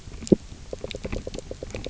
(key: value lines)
label: biophony
recorder: SoundTrap 300